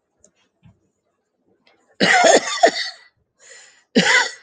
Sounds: Cough